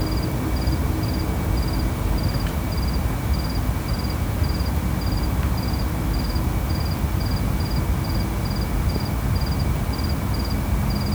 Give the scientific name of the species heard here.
Gryllus bimaculatus